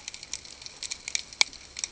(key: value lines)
label: ambient
recorder: HydroMoth